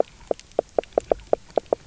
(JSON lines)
{"label": "biophony, knock croak", "recorder": "SoundTrap 300"}